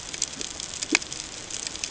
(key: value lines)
label: ambient
recorder: HydroMoth